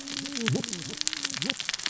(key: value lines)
label: biophony, cascading saw
recorder: SoundTrap 600 or HydroMoth